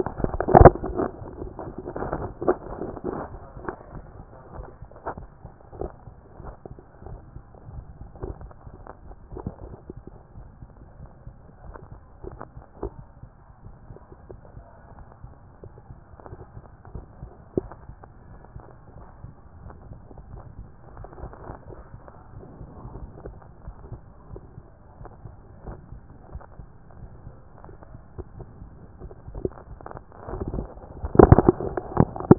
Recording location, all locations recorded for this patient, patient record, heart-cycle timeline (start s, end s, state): aortic valve (AV)
aortic valve (AV)+pulmonary valve (PV)+tricuspid valve (TV)+mitral valve (MV)
#Age: nan
#Sex: Female
#Height: nan
#Weight: nan
#Pregnancy status: True
#Murmur: Absent
#Murmur locations: nan
#Most audible location: nan
#Systolic murmur timing: nan
#Systolic murmur shape: nan
#Systolic murmur grading: nan
#Systolic murmur pitch: nan
#Systolic murmur quality: nan
#Diastolic murmur timing: nan
#Diastolic murmur shape: nan
#Diastolic murmur grading: nan
#Diastolic murmur pitch: nan
#Diastolic murmur quality: nan
#Outcome: Normal
#Campaign: 2014 screening campaign
0.00	23.45	unannotated
23.45	23.66	diastole
23.66	23.76	S1
23.76	23.92	systole
23.92	24.02	S2
24.02	24.30	diastole
24.30	24.42	S1
24.42	24.58	systole
24.58	24.68	S2
24.68	25.00	diastole
25.00	25.10	S1
25.10	25.24	systole
25.24	25.34	S2
25.34	25.66	diastole
25.66	25.78	S1
25.78	25.92	systole
25.92	26.02	S2
26.02	26.32	diastole
26.32	26.44	S1
26.44	26.60	systole
26.60	26.68	S2
26.68	26.92	diastole
26.92	32.38	unannotated